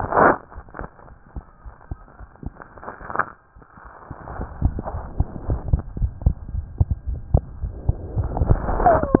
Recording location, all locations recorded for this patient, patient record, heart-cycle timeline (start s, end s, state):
aortic valve (AV)
aortic valve (AV)+pulmonary valve (PV)+tricuspid valve (TV)+mitral valve (MV)
#Age: Child
#Sex: Male
#Height: 95.0 cm
#Weight: 15.9 kg
#Pregnancy status: False
#Murmur: Absent
#Murmur locations: nan
#Most audible location: nan
#Systolic murmur timing: nan
#Systolic murmur shape: nan
#Systolic murmur grading: nan
#Systolic murmur pitch: nan
#Systolic murmur quality: nan
#Diastolic murmur timing: nan
#Diastolic murmur shape: nan
#Diastolic murmur grading: nan
#Diastolic murmur pitch: nan
#Diastolic murmur quality: nan
#Outcome: Normal
#Campaign: 2015 screening campaign
0.00	3.82	unannotated
3.82	3.91	S1
3.91	4.06	systole
4.06	4.16	S2
4.16	4.36	diastole
4.36	4.48	S1
4.48	4.60	systole
4.60	4.72	S2
4.72	4.91	diastole
4.91	5.03	S1
5.03	5.16	systole
5.16	5.28	S2
5.28	5.46	diastole
5.46	5.60	S1
5.60	5.70	systole
5.70	5.79	S2
5.79	5.98	diastole
5.98	6.10	S1
6.10	6.22	systole
6.22	6.36	S2
6.36	6.50	diastole
6.50	6.66	S1
6.66	6.76	systole
6.76	6.90	S2
6.90	7.06	diastole
7.06	7.20	S1
7.20	7.30	systole
7.30	7.42	S2
7.42	7.60	diastole
7.60	7.76	S1
7.76	7.86	systole
7.86	7.96	S2
7.96	8.12	diastole
8.12	8.28	S1
8.28	9.20	unannotated